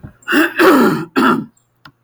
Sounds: Throat clearing